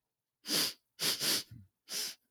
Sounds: Sniff